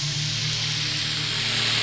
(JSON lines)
{"label": "anthrophony, boat engine", "recorder": "SoundTrap 500"}